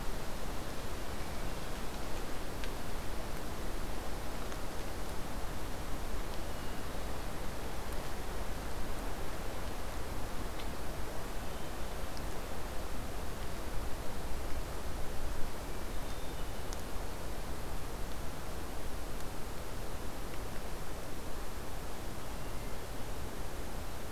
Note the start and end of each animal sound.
1.1s-2.0s: Hermit Thrush (Catharus guttatus)
6.4s-7.3s: Hermit Thrush (Catharus guttatus)
11.2s-12.0s: Hermit Thrush (Catharus guttatus)
15.4s-16.7s: Hermit Thrush (Catharus guttatus)
22.3s-23.1s: Hermit Thrush (Catharus guttatus)

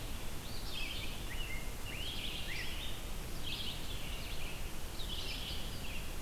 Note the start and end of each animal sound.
0.0s-6.2s: Red-eyed Vireo (Vireo olivaceus)
0.2s-1.1s: Eastern Phoebe (Sayornis phoebe)
0.4s-3.1s: Rose-breasted Grosbeak (Pheucticus ludovicianus)

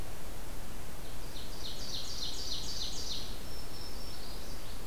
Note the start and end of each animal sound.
0.9s-3.4s: Ovenbird (Seiurus aurocapilla)
3.4s-4.9s: Black-throated Green Warbler (Setophaga virens)

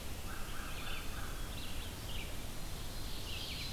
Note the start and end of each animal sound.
0.0s-1.4s: American Crow (Corvus brachyrhynchos)
0.0s-3.7s: Red-eyed Vireo (Vireo olivaceus)
0.5s-1.6s: Wood Thrush (Hylocichla mustelina)
3.0s-3.7s: Black-throated Blue Warbler (Setophaga caerulescens)

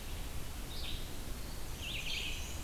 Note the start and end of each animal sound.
0.0s-2.6s: Red-eyed Vireo (Vireo olivaceus)
1.5s-2.6s: Black-and-white Warbler (Mniotilta varia)

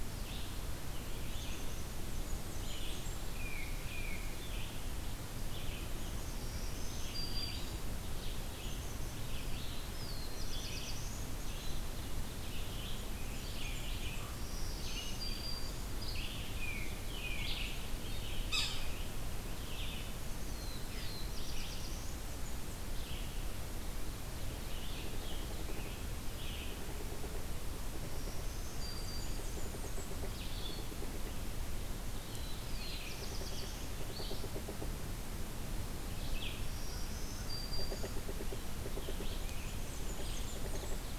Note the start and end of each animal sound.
0.0s-18.5s: Red-eyed Vireo (Vireo olivaceus)
1.1s-2.0s: Black-capped Chickadee (Poecile atricapillus)
1.9s-3.4s: Blackburnian Warbler (Setophaga fusca)
3.3s-4.2s: Tufted Titmouse (Baeolophus bicolor)
6.2s-7.9s: Black-throated Green Warbler (Setophaga virens)
8.4s-9.3s: Black-capped Chickadee (Poecile atricapillus)
9.4s-11.3s: Black-throated Blue Warbler (Setophaga caerulescens)
11.1s-11.9s: Black-capped Chickadee (Poecile atricapillus)
12.8s-14.3s: Blackburnian Warbler (Setophaga fusca)
14.0s-14.6s: Common Raven (Corvus corax)
14.4s-16.0s: Black-throated Green Warbler (Setophaga virens)
16.5s-17.5s: Tufted Titmouse (Baeolophus bicolor)
18.3s-19.0s: Yellow-bellied Sapsucker (Sphyrapicus varius)
19.3s-41.2s: Red-eyed Vireo (Vireo olivaceus)
20.3s-22.4s: Black-throated Blue Warbler (Setophaga caerulescens)
24.9s-30.3s: Pileated Woodpecker (Dryocopus pileatus)
28.0s-29.6s: Black-throated Green Warbler (Setophaga virens)
28.8s-30.2s: Blackburnian Warbler (Setophaga fusca)
32.1s-34.0s: Black-throated Blue Warbler (Setophaga caerulescens)
33.0s-35.1s: Pileated Woodpecker (Dryocopus pileatus)
36.5s-38.3s: Black-throated Green Warbler (Setophaga virens)
37.6s-39.4s: Pileated Woodpecker (Dryocopus pileatus)
39.3s-41.1s: Blackburnian Warbler (Setophaga fusca)
40.3s-41.2s: Pileated Woodpecker (Dryocopus pileatus)

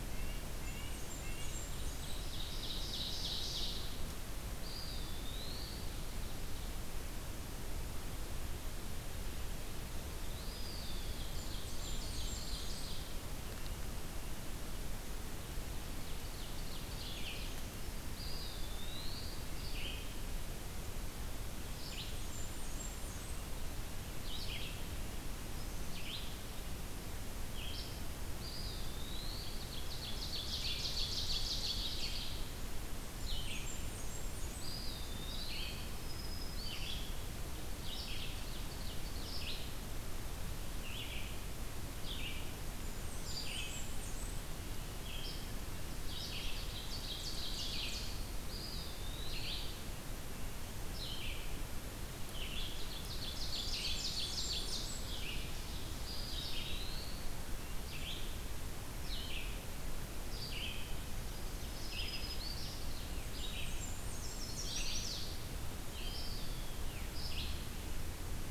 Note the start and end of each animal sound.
0.0s-1.6s: Red-breasted Nuthatch (Sitta canadensis)
0.6s-2.1s: Blackburnian Warbler (Setophaga fusca)
1.5s-4.4s: Ovenbird (Seiurus aurocapilla)
4.3s-6.2s: Eastern Wood-Pewee (Contopus virens)
10.1s-11.4s: Eastern Wood-Pewee (Contopus virens)
10.9s-13.5s: Ovenbird (Seiurus aurocapilla)
11.2s-13.0s: Blackburnian Warbler (Setophaga fusca)
15.4s-17.8s: Ovenbird (Seiurus aurocapilla)
16.8s-28.1s: Red-eyed Vireo (Vireo olivaceus)
17.9s-19.7s: Eastern Wood-Pewee (Contopus virens)
21.7s-23.6s: Blackburnian Warbler (Setophaga fusca)
28.1s-30.0s: Eastern Wood-Pewee (Contopus virens)
29.6s-32.6s: Ovenbird (Seiurus aurocapilla)
30.3s-68.5s: Red-eyed Vireo (Vireo olivaceus)
32.8s-35.1s: Blackburnian Warbler (Setophaga fusca)
34.6s-36.1s: Eastern Wood-Pewee (Contopus virens)
35.9s-37.2s: Black-throated Green Warbler (Setophaga virens)
37.7s-39.9s: Ovenbird (Seiurus aurocapilla)
42.6s-44.5s: Blackburnian Warbler (Setophaga fusca)
46.2s-48.4s: Ovenbird (Seiurus aurocapilla)
48.1s-50.0s: Eastern Wood-Pewee (Contopus virens)
52.2s-56.3s: Ovenbird (Seiurus aurocapilla)
53.4s-55.1s: Blackburnian Warbler (Setophaga fusca)
55.9s-57.6s: Eastern Wood-Pewee (Contopus virens)
61.2s-63.2s: Ovenbird (Seiurus aurocapilla)
61.4s-63.1s: Black-throated Green Warbler (Setophaga virens)
63.2s-64.9s: Blackburnian Warbler (Setophaga fusca)
64.0s-65.6s: Chestnut-sided Warbler (Setophaga pensylvanica)
65.9s-67.0s: Eastern Wood-Pewee (Contopus virens)

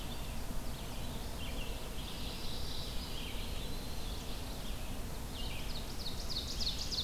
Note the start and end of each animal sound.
0.0s-7.0s: Red-eyed Vireo (Vireo olivaceus)
1.8s-3.2s: Mourning Warbler (Geothlypis philadelphia)
2.6s-4.4s: Eastern Wood-Pewee (Contopus virens)
5.1s-7.0s: Ovenbird (Seiurus aurocapilla)

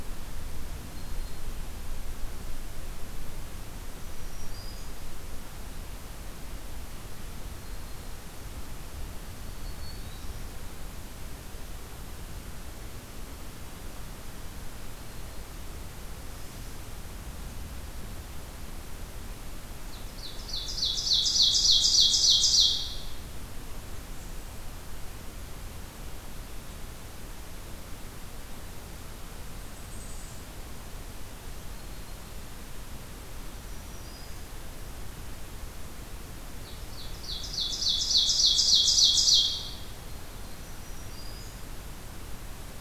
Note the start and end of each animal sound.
0.8s-1.6s: Black-throated Green Warbler (Setophaga virens)
3.9s-5.1s: Black-throated Green Warbler (Setophaga virens)
9.2s-10.7s: Black-throated Green Warbler (Setophaga virens)
19.8s-23.3s: Ovenbird (Seiurus aurocapilla)
29.3s-30.7s: Blackburnian Warbler (Setophaga fusca)
33.4s-34.8s: Black-throated Green Warbler (Setophaga virens)
36.6s-40.0s: Ovenbird (Seiurus aurocapilla)
40.3s-41.9s: Black-throated Green Warbler (Setophaga virens)

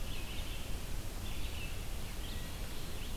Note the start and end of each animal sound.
0.0s-3.2s: Red-eyed Vireo (Vireo olivaceus)

